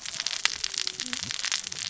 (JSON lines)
{"label": "biophony, cascading saw", "recorder": "SoundTrap 600 or HydroMoth"}